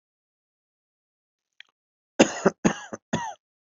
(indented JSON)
{
  "expert_labels": [
    {
      "quality": "good",
      "cough_type": "dry",
      "dyspnea": false,
      "wheezing": false,
      "stridor": false,
      "choking": false,
      "congestion": false,
      "nothing": true,
      "diagnosis": "healthy cough",
      "severity": "pseudocough/healthy cough"
    }
  ],
  "age": 27,
  "gender": "male",
  "respiratory_condition": false,
  "fever_muscle_pain": true,
  "status": "COVID-19"
}